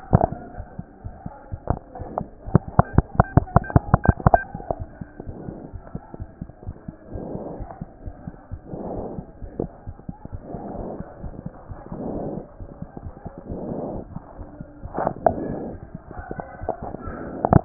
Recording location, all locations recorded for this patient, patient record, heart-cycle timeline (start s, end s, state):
aortic valve (AV)
aortic valve (AV)+pulmonary valve (PV)+tricuspid valve (TV)+mitral valve (MV)
#Age: Child
#Sex: Male
#Height: 94.0 cm
#Weight: 13.3 kg
#Pregnancy status: False
#Murmur: Absent
#Murmur locations: nan
#Most audible location: nan
#Systolic murmur timing: nan
#Systolic murmur shape: nan
#Systolic murmur grading: nan
#Systolic murmur pitch: nan
#Systolic murmur quality: nan
#Diastolic murmur timing: nan
#Diastolic murmur shape: nan
#Diastolic murmur grading: nan
#Diastolic murmur pitch: nan
#Diastolic murmur quality: nan
#Outcome: Normal
#Campaign: 2014 screening campaign
0.00	5.26	unannotated
5.26	5.36	S1
5.36	5.48	systole
5.48	5.57	S2
5.57	5.74	diastole
5.74	5.82	S1
5.82	5.94	systole
5.94	6.02	S2
6.02	6.18	diastole
6.18	6.28	S1
6.28	6.40	systole
6.40	6.50	S2
6.50	6.66	diastole
6.66	6.76	S1
6.76	6.86	systole
6.86	6.96	S2
6.96	7.14	diastole
7.14	7.25	S1
7.25	7.32	systole
7.32	7.42	S2
7.42	7.58	diastole
7.58	7.68	S1
7.68	7.80	systole
7.80	7.88	S2
7.88	8.04	diastole
8.04	8.14	S1
8.14	8.26	systole
8.26	8.34	S2
8.34	8.52	diastole
8.52	17.65	unannotated